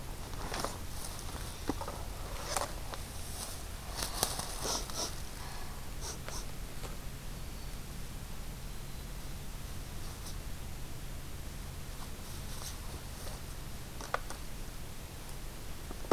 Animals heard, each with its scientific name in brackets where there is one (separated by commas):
Black-throated Green Warbler (Setophaga virens)